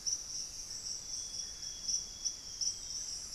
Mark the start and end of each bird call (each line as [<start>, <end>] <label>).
[0.90, 3.30] Amazonian Grosbeak (Cyanoloxia rothschildii)